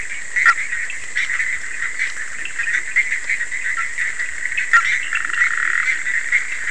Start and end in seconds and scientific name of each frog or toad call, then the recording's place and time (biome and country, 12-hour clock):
0.0	6.7	Boana bischoffi
2.3	2.9	Leptodactylus latrans
5.2	6.1	Leptodactylus latrans
Atlantic Forest, Brazil, 11:30pm